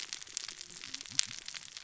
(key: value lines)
label: biophony, cascading saw
recorder: SoundTrap 600 or HydroMoth